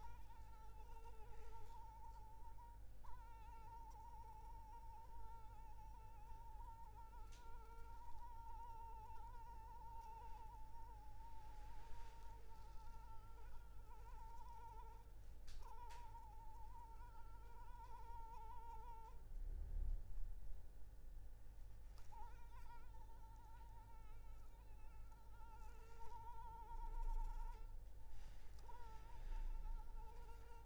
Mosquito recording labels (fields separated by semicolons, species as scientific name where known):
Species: Anopheles arabiensis; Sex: female; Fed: unfed; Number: one; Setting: cup